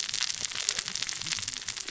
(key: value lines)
label: biophony, cascading saw
recorder: SoundTrap 600 or HydroMoth